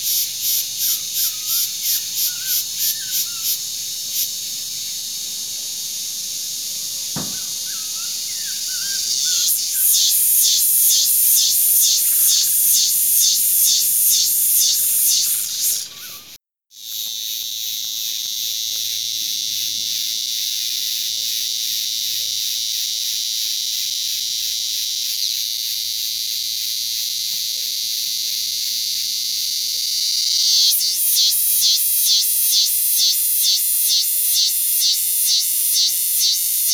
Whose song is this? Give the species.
Fidicina toulgoeti